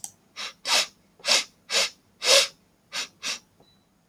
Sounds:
Sniff